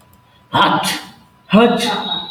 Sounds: Sneeze